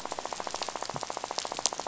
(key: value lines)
label: biophony, rattle
recorder: SoundTrap 500